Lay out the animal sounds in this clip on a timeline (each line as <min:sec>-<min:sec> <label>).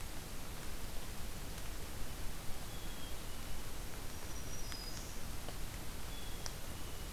0:02.7-0:03.6 Black-capped Chickadee (Poecile atricapillus)
0:04.1-0:05.2 Black-throated Green Warbler (Setophaga virens)
0:06.1-0:07.1 Black-capped Chickadee (Poecile atricapillus)